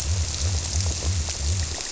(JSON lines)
{"label": "biophony", "recorder": "SoundTrap 300"}